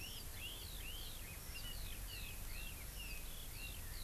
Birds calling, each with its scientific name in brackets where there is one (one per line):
Eurasian Skylark (Alauda arvensis)
Red-billed Leiothrix (Leiothrix lutea)